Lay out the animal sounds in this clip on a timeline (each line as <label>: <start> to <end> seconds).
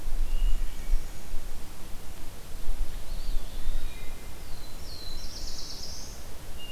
Wood Thrush (Hylocichla mustelina): 0.0 to 1.8 seconds
Brown Creeper (Certhia americana): 0.3 to 1.4 seconds
Eastern Wood-Pewee (Contopus virens): 2.8 to 4.6 seconds
Wood Thrush (Hylocichla mustelina): 3.6 to 4.9 seconds
Black-throated Blue Warbler (Setophaga caerulescens): 4.2 to 6.4 seconds